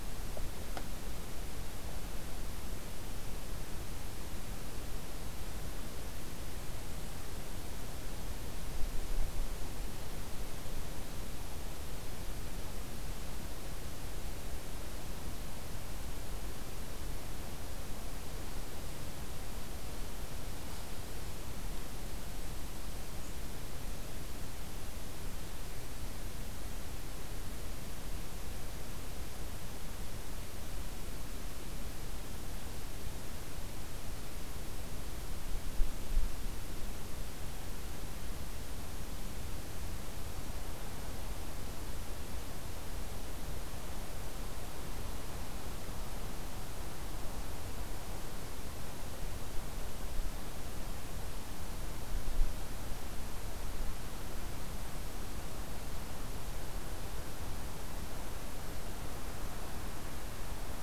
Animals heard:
forest ambience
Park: Hubbard Brook Experimental Forest